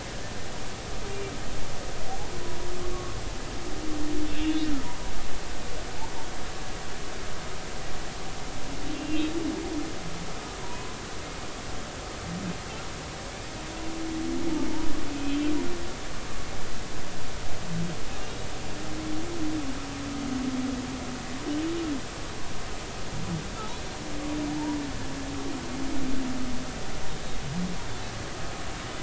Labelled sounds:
2.9	3.2	humpback whale, 1.1 to 1.2 kHz
4.3	5.1	humpback whale, 0.93 to 3.6 kHz
8.9	9.3	humpback whale, 2.7 to 2.8 kHz
10.6	10.9	humpback whale, 0.93 to 1.1 kHz
15.1	15.4	humpback whale, 2.5 to 2.6 kHz

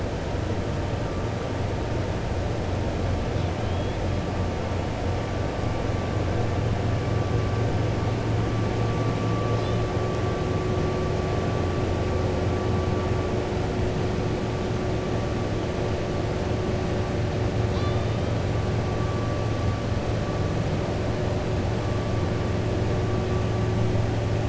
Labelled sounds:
3.6	4.0	killer whale, 2.4 to 3.9 kHz
17.6	18.2	killer whale, 1.1 to 5.6 kHz

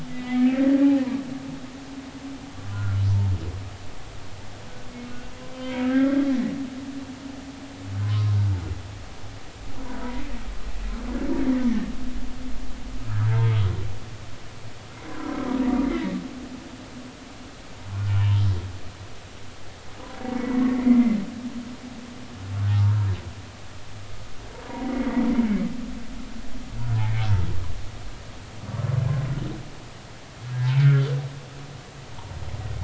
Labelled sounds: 0.1	0.8	humpback whale, 1.8 to 2.4 kHz
2.7	3.0	humpback whale, 1.3 to 1.5 kHz
5.1	6.2	humpback whale, 1.2 to 3.2 kHz
8.0	8.4	humpback whale, 0.99 to 1.1 kHz
11.7	11.9	humpback whale, 1.7 to 1.9 kHz
13.3	13.6	humpback whale, 0.86 to 1.7 kHz
15.1	16.2	humpback whale, 0.93 to 2.2 kHz
17.9	18.4	humpback whale, 0.90 to 3.0 kHz
20.4	20.8	humpback whale, 1.0 to 2.0 kHz
22.7	23.1	humpback whale, 0.80 to 1.4 kHz
24.7	25.2	humpback whale, 1.8 to 2.3 kHz
27.0	27.3	humpback whale, 2.0 to 2.4 kHz
30.5	31.1	humpback whale, 1.3 to 1.8 kHz

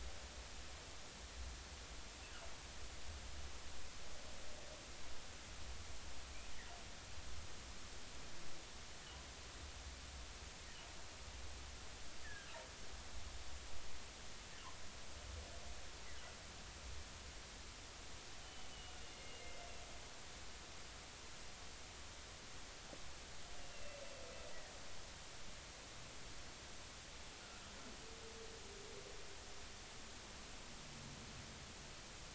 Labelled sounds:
12.2	12.5	humpback whale, 1.5 to 1.9 kHz
18.4	19.7	humpback whale, 2.0 to 3.1 kHz
23.6	24.0	humpback whale, 2.6 to 2.9 kHz

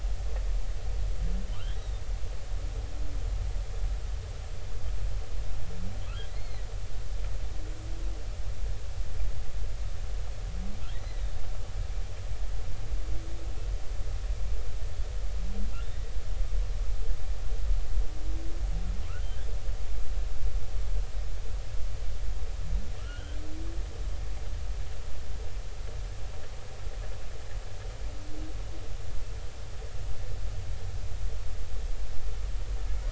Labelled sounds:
1.8	2.0	humpback whale, 3.6 to 3.9 kHz
6.3	6.7	humpback whale, 1.9 to 4.4 kHz
10.9	11.2	humpback whale, 1.8 to 2.1 kHz
23.0	23.4	humpback whale, 1.2 to 3.3 kHz

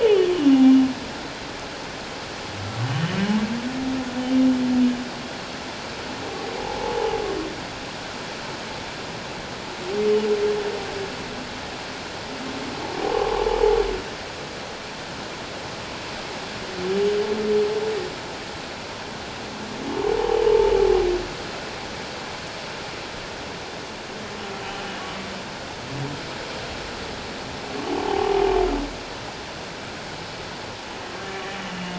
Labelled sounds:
6.5	6.9	humpback whale, 0.78 to 0.94 kHz
13.0	13.5	humpback whale, 0.78 to 1.2 kHz
20.4	20.7	humpback whale, 0.84 to 0.97 kHz
25.0	25.3	humpback whale, 0.94 to 1.2 kHz
27.8	28.4	humpback whale, 0.78 to 0.97 kHz

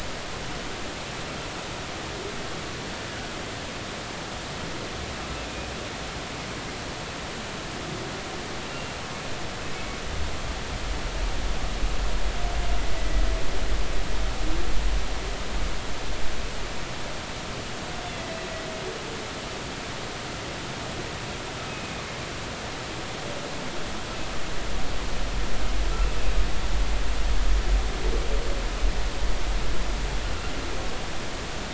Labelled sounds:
8.7	9.0	humpback whale, 2.7 to 2.8 kHz
9.7	10.0	humpback whale, 2.1 to 2.3 kHz
13.0	13.2	humpback whale, 1.9 to 2.0 kHz
21.7	22.0	humpback whale, 2.4 to 2.6 kHz

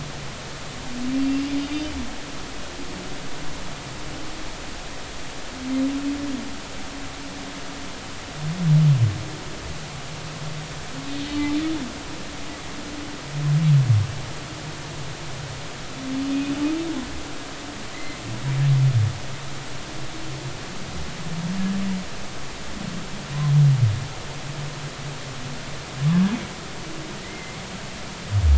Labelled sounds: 1.1	1.4	humpback whale, 2.6 to 2.8 kHz
17.9	18.2	humpback whale, 2.0 to 2.2 kHz
27.2	27.6	humpback whale, 1.9 to 2.2 kHz

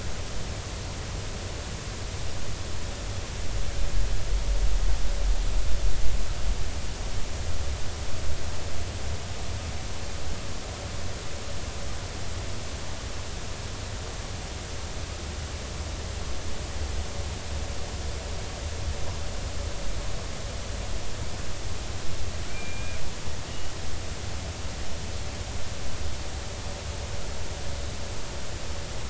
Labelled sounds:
22.5	23.0	killer whale, Bigg's (transient), 2.2 to 2.5 kHz

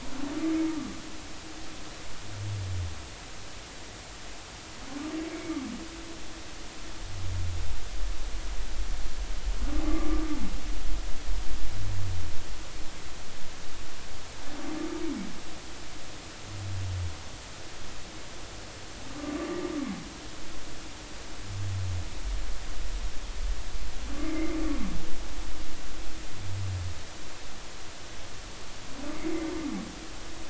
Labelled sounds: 5.3	5.6	humpback whale, 2.1 to 2.4 kHz
9.8	10.3	humpback whale, 1.0 to 1.2 kHz
19.1	19.3	humpback whale, 1.1 to 1.2 kHz
24.2	24.6	humpback whale, 2.0 to 2.4 kHz

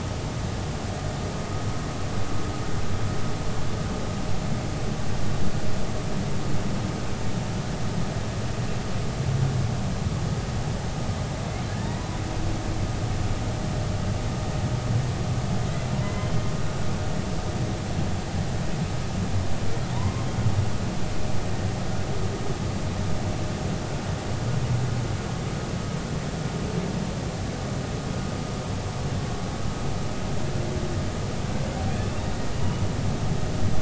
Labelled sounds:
11.7	12.2	humpback whale, 0.86 to 2.0 kHz
16.0	16.3	humpback whale, 2.0 to 2.2 kHz
19.9	20.3	humpback whale, 0.90 to 1.1 kHz

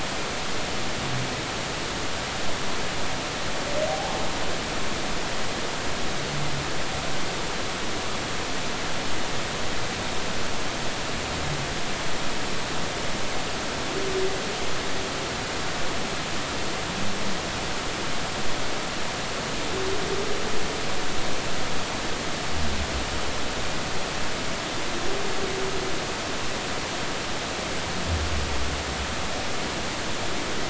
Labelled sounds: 3.9	4.2	humpback whale, 0.80 to 0.90 kHz

